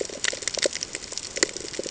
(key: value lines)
label: ambient
recorder: HydroMoth